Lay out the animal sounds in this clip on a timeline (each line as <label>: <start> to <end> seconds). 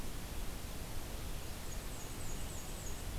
Black-and-white Warbler (Mniotilta varia): 1.4 to 3.0 seconds